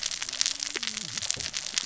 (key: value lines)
label: biophony, cascading saw
recorder: SoundTrap 600 or HydroMoth